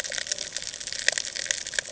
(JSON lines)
{"label": "ambient", "recorder": "HydroMoth"}